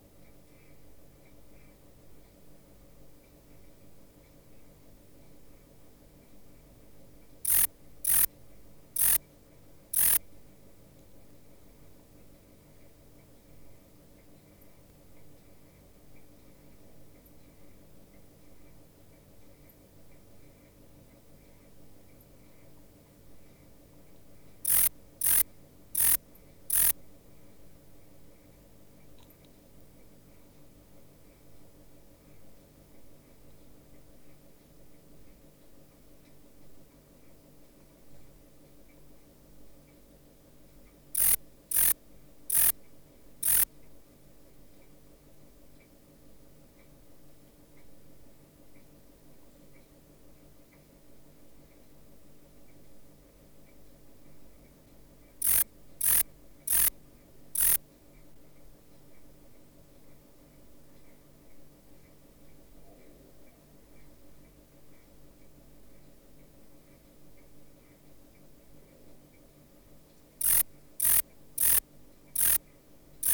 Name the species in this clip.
Rhacocleis germanica